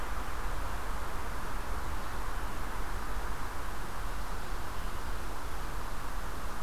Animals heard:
forest ambience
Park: Marsh-Billings-Rockefeller National Historical Park